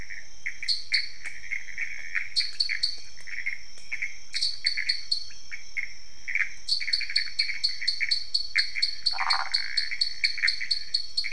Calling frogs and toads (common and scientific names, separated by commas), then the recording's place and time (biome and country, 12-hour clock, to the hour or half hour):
Pithecopus azureus, dwarf tree frog (Dendropsophus nanus), pointedbelly frog (Leptodactylus podicipinus), waxy monkey tree frog (Phyllomedusa sauvagii)
Cerrado, Brazil, ~1am